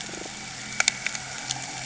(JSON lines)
{"label": "anthrophony, boat engine", "recorder": "HydroMoth"}